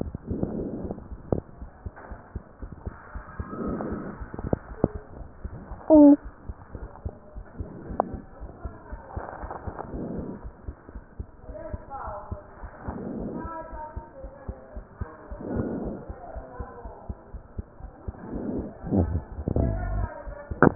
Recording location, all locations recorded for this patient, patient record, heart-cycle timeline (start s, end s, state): pulmonary valve (PV)
aortic valve (AV)+pulmonary valve (PV)+tricuspid valve (TV)+mitral valve (MV)
#Age: Child
#Sex: Male
#Height: 108.0 cm
#Weight: 23.8 kg
#Pregnancy status: False
#Murmur: Absent
#Murmur locations: nan
#Most audible location: nan
#Systolic murmur timing: nan
#Systolic murmur shape: nan
#Systolic murmur grading: nan
#Systolic murmur pitch: nan
#Systolic murmur quality: nan
#Diastolic murmur timing: nan
#Diastolic murmur shape: nan
#Diastolic murmur grading: nan
#Diastolic murmur pitch: nan
#Diastolic murmur quality: nan
#Outcome: Normal
#Campaign: 2015 screening campaign
0.00	10.26	unannotated
10.26	10.41	diastole
10.41	10.54	S1
10.54	10.64	systole
10.64	10.79	S2
10.79	10.92	diastole
10.92	11.04	S1
11.04	11.19	systole
11.19	11.29	S2
11.29	11.46	diastole
11.46	11.57	S1
11.57	11.69	systole
11.69	11.81	S2
11.81	12.05	diastole
12.05	12.18	S1
12.18	12.30	systole
12.30	12.40	S2
12.40	12.59	diastole
12.59	12.73	S1
12.73	12.82	systole
12.82	12.96	S2
12.96	13.16	diastole
13.16	13.29	S1
13.29	13.42	systole
13.42	13.55	S2
13.55	13.68	diastole
13.68	13.82	S1
13.82	13.95	systole
13.95	14.04	S2
14.04	14.20	diastole
14.20	14.30	S1
14.30	14.46	systole
14.46	14.58	S2
14.58	14.74	diastole
14.74	14.84	S1
14.84	14.96	systole
14.96	15.10	S2
15.10	15.30	diastole
15.30	15.38	S1
15.38	15.50	systole
15.50	15.68	S2
15.68	15.80	diastole
15.80	15.96	S1
15.96	16.08	systole
16.08	16.17	S2
16.17	16.34	diastole
16.34	16.46	S1
16.46	16.57	systole
16.57	16.66	S2
16.66	16.84	diastole
16.84	16.92	S1
16.92	17.04	systole
17.04	17.18	S2
17.18	17.33	diastole
17.33	17.42	S1
17.42	17.56	systole
17.56	17.68	S2
17.68	17.78	diastole
17.78	17.90	S1
17.90	18.06	systole
18.06	18.16	S2
18.16	18.34	diastole
18.34	20.75	unannotated